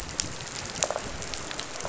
{"label": "biophony, rattle response", "recorder": "SoundTrap 500"}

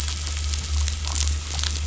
{"label": "anthrophony, boat engine", "recorder": "SoundTrap 500"}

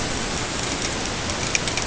{"label": "ambient", "recorder": "HydroMoth"}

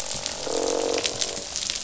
{"label": "biophony, croak", "recorder": "SoundTrap 500"}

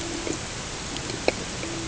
{"label": "ambient", "recorder": "HydroMoth"}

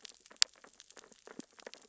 {"label": "biophony, sea urchins (Echinidae)", "recorder": "SoundTrap 600 or HydroMoth"}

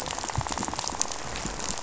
{"label": "biophony, rattle", "recorder": "SoundTrap 500"}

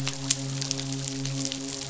{"label": "biophony, midshipman", "recorder": "SoundTrap 500"}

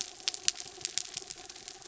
{"label": "anthrophony, mechanical", "recorder": "SoundTrap 300"}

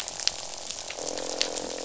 {"label": "biophony, croak", "recorder": "SoundTrap 500"}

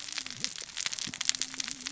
{"label": "biophony, cascading saw", "recorder": "SoundTrap 600 or HydroMoth"}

